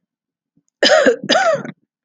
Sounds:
Cough